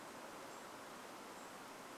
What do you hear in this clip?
Golden-crowned Kinglet call, insect buzz